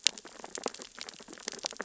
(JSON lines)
{"label": "biophony, sea urchins (Echinidae)", "recorder": "SoundTrap 600 or HydroMoth"}